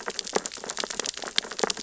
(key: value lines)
label: biophony, sea urchins (Echinidae)
recorder: SoundTrap 600 or HydroMoth